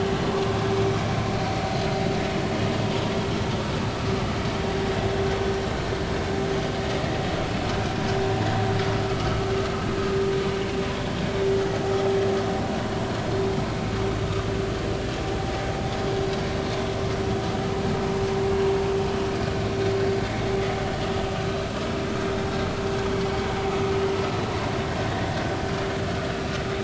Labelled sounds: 9.1	9.4	vessel noise, 1.2 to 1.4 kHz
25.0	25.3	vessel noise, 1.6 to 2.1 kHz

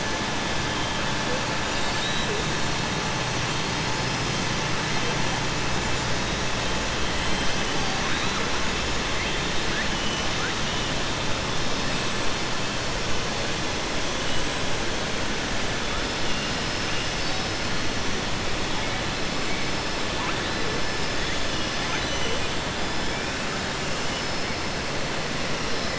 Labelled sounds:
21.8	22.4	killer whale, southern resident, 0.88 to 6.3 kHz

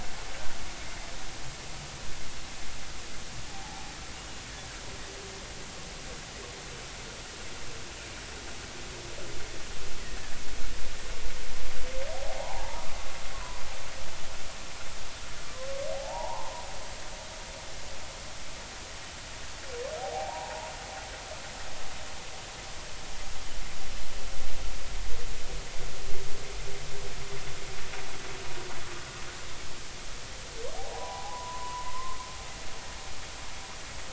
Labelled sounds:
3.5	4.4	humpback whale, 0.80 to 3.0 kHz
12.1	12.9	humpback whale, 0.80 to 1.1 kHz
13.3	13.6	humpback whale, 0.93 to 1.2 kHz
15.9	16.7	humpback whale, 0.80 to 1.1 kHz
20.1	20.7	humpback whale, 0.80 to 1.0 kHz
30.9	32.2	humpback whale, 0.80 to 1.1 kHz

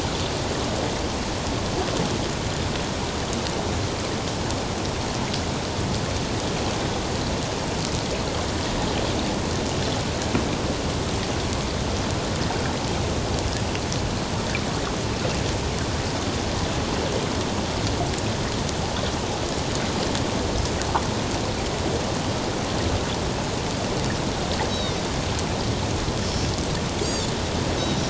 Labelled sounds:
24.7	25.0	Pacific white-sided dolphin, 3.5 to 4.0 kHz
26.2	26.5	Pacific white-sided dolphin, 5.2 to 5.4 kHz
27.0	28.0	Pacific white-sided dolphin, 4.4 to 7.7 kHz

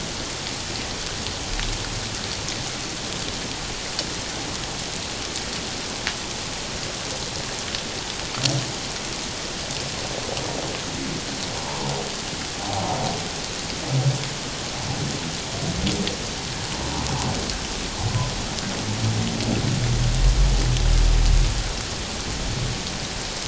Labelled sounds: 11.6	11.8	humpback whale, 0.81 to 1.1 kHz

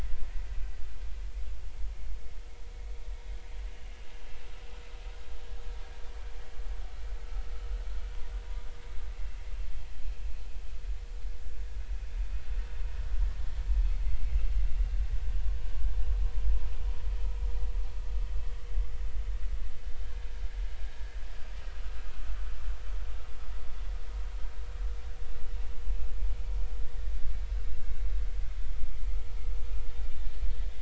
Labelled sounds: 14.7	14.9	vessel noise, 2.7 to 2.9 kHz

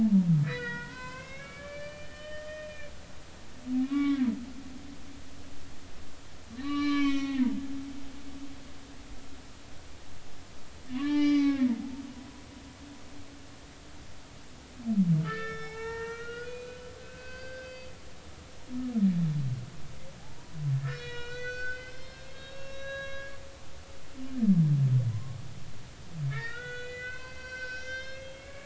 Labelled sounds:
0.0	2.9	humpback whale, 0.80 to 5.2 kHz
3.8	4.3	humpback whale, 1.0 to 3.7 kHz
6.6	7.5	humpback whale, 1.0 to 6.0 kHz
10.9	11.7	humpback whale, 0.80 to 5.6 kHz
15.2	17.9	humpback whale, 0.80 to 5.5 kHz
20.2	23.4	humpback whale, 0.80 to 6.1 kHz
25.1	25.4	humpback whale, 0.96 to 1.1 kHz
26.3	28.6	humpback whale, 0.96 to 7.0 kHz

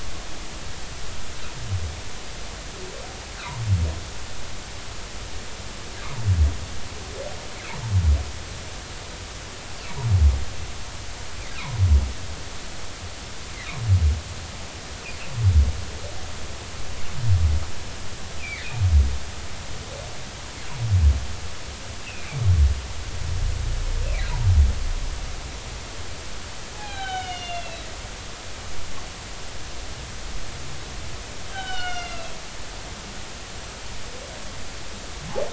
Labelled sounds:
18.4	18.7	humpback whale, 1.7 to 2.7 kHz
22.0	22.4	humpback whale, 2.2 to 2.9 kHz
26.7	27.8	humpback whale, 0.80 to 4.4 kHz
31.5	32.4	humpback whale, 1.3 to 6.5 kHz

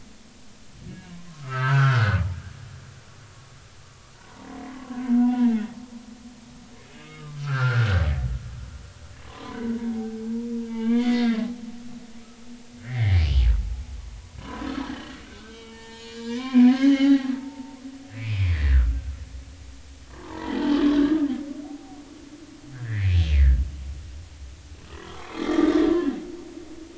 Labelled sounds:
1.3	2.2	humpback whale, 0.86 to 1.8 kHz
5.2	5.6	humpback whale, 0.80 to 2.8 kHz
7.0	8.0	humpback whale, 0.99 to 3.8 kHz
9.3	10.2	humpback whale, 0.80 to 2.1 kHz
10.6	11.4	humpback whale, 1.1 to 4.8 kHz
12.8	13.3	humpback whale, 1.5 to 2.6 kHz
14.4	17.8	humpback whale, 0.80 to 7.1 kHz
18.1	18.5	humpback whale, 2.0 to 2.7 kHz
19.5	21.2	humpback whale, 0.80 to 3.4 kHz
21.6	22.0	humpback whale, 0.80 to 0.83 kHz
22.7	23.6	humpback whale, 1.5 to 2.6 kHz
25.1	26.2	humpback whale, 0.86 to 3.5 kHz

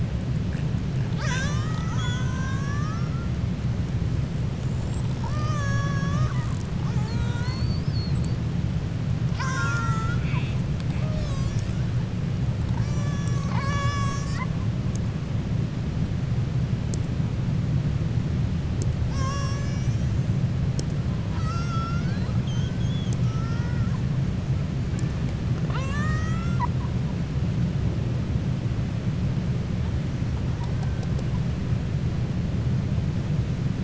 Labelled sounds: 9.2	10.6	killer whale, 0.94 to 7.9 kHz
23.2	23.9	killer whale, 0.91 to 2.4 kHz
25.6	26.9	killer whale, 0.68 to 7.7 kHz

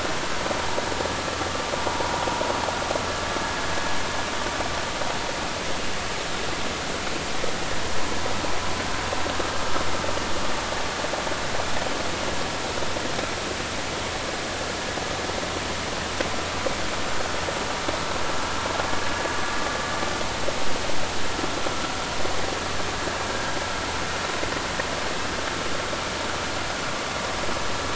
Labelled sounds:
23.3	23.6	vessel noise, 1.5 to 1.7 kHz

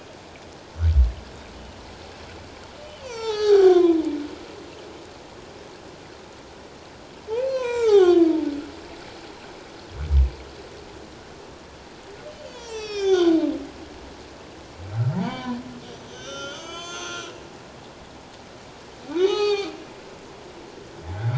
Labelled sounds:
3.0	4.0	humpback whale, 0.78 to 7.6 kHz
7.3	8.2	humpback whale, 0.78 to 6.6 kHz
12.4	13.4	humpback whale, 0.81 to 6.8 kHz
15.1	15.6	humpback whale, 0.78 to 4.8 kHz
15.9	17.3	humpback whale, 0.97 to 7.4 kHz
19.2	19.7	humpback whale, 0.78 to 6.3 kHz

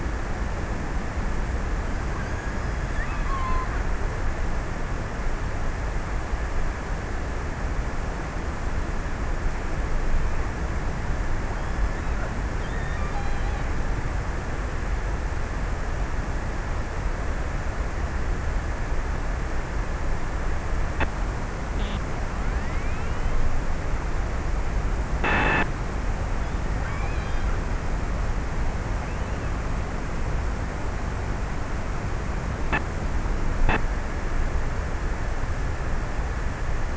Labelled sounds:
2.5	4.5	killer whale, offshore, 0.80 to 4.8 kHz
12.5	14.2	killer whale, offshore, 1.1 to 4.4 kHz
26.3	27.8	killer whale, offshore, 0.47 to 2.9 kHz

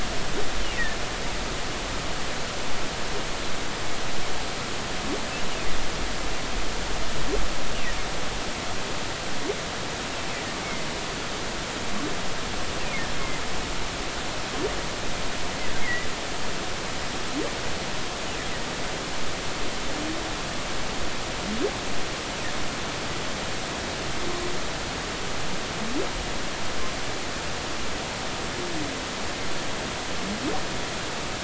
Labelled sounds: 10.6	10.9	humpback whale, 2.0 to 2.3 kHz
13.1	13.4	humpback whale, 2.0 to 2.2 kHz
15.8	16.1	humpback whale, 1.9 to 2.2 kHz

